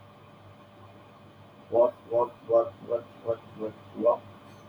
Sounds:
Cough